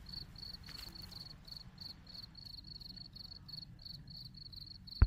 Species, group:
Gryllus pennsylvanicus
Orthoptera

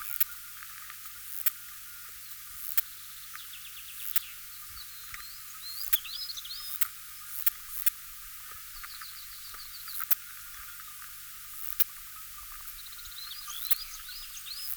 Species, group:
Poecilimon nobilis
Orthoptera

